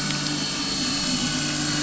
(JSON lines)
{"label": "anthrophony, boat engine", "recorder": "SoundTrap 500"}